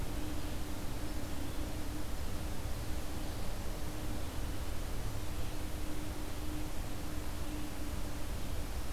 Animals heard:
forest ambience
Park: Marsh-Billings-Rockefeller National Historical Park